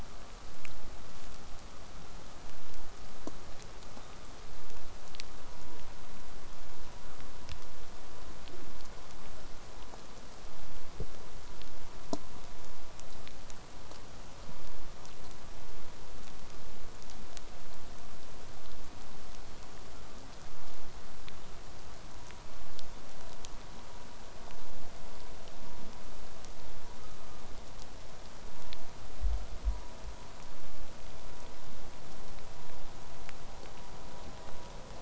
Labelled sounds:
3.9	4.6	killer whale, southern resident, call S16, 1.0 to 3.9 kHz

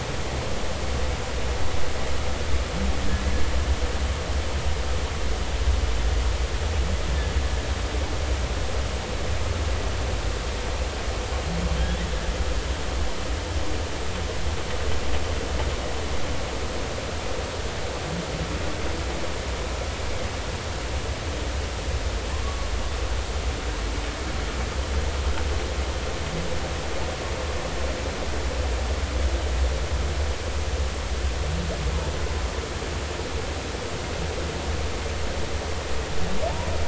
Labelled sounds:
22.4	22.7	humpback whale, 1.1 to 1.2 kHz

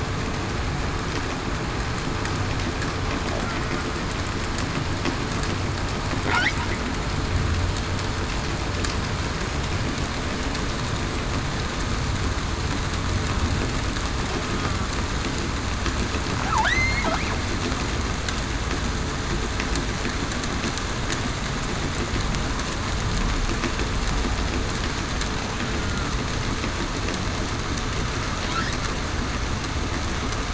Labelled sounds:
16.6	17.0	killer whale, southern resident, 1.4 to 4.4 kHz
25.8	26.1	killer whale, southern resident, 1.3 to 1.4 kHz

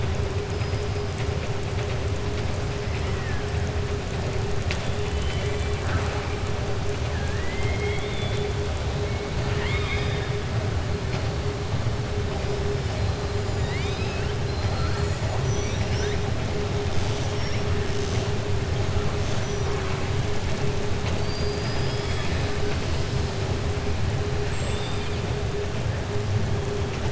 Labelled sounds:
5.0	5.7	killer whale, southern resident, 1.9 to 3.5 kHz
7.1	8.5	killer whale, southern resident, 1.6 to 4.1 kHz
9.4	10.3	killer whale, southern resident, 1.0 to 5.0 kHz
13.5	16.2	killer whale, southern resident, 0.53 to 7.1 kHz
16.9	17.6	killer whale, southern resident, 3.9 to 6.8 kHz
24.6	25.1	killer whale, southern resident, 2.4 to 4.7 kHz

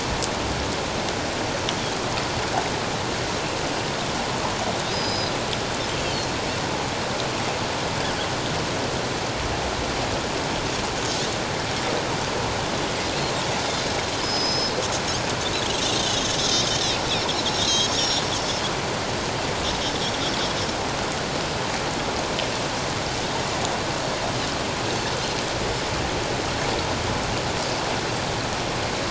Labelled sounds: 4.9	5.3	Pacific white-sided dolphin, 3.8 to 5.2 kHz
14.2	14.8	Pacific white-sided dolphin, 5.0 to 6.2 kHz
15.9	16.3	Pacific white-sided dolphin, 2.8 to 3.9 kHz
17.6	18.3	Pacific white-sided dolphin, 3.8 to 7.1 kHz

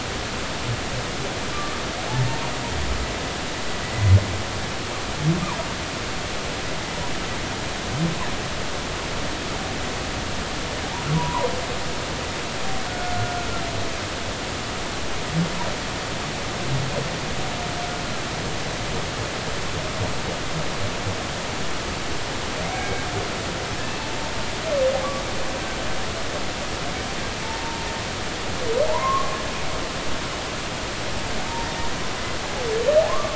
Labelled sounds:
1.5	1.8	humpback whale, 1.1 to 1.2 kHz
11.1	11.5	humpback whale, 0.86 to 1.2 kHz
12.9	13.4	humpback whale, 1.3 to 1.5 kHz
22.7	23.1	humpback whale, 2.2 to 2.3 kHz
27.4	27.9	humpback whale, 0.83 to 0.99 kHz
28.9	29.4	humpback whale, 0.83 to 1.2 kHz
33.1	33.3	humpback whale, 0.99 to 1.3 kHz

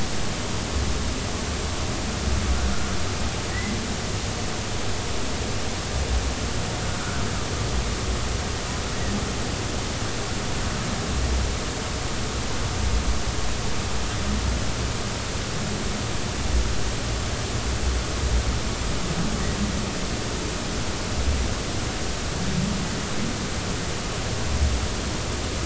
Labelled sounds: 3.5	3.8	humpback whale, 1.8 to 2.2 kHz

